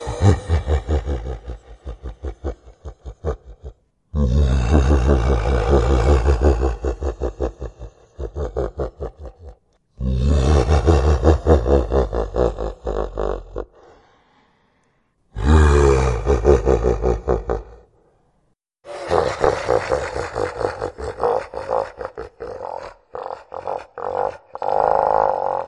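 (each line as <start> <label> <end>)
0.1 A deep, guttural laughter echoes through the darkness, blending beastly and demonic tones with a twisted, ancient horror. 25.7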